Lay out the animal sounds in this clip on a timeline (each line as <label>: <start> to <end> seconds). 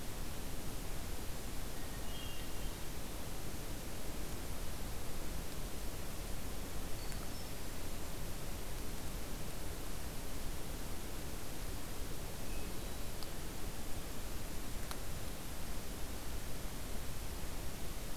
Hermit Thrush (Catharus guttatus): 1.7 to 2.9 seconds
Hermit Thrush (Catharus guttatus): 6.8 to 8.1 seconds
Hermit Thrush (Catharus guttatus): 12.3 to 13.4 seconds